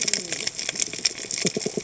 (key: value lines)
label: biophony, cascading saw
recorder: HydroMoth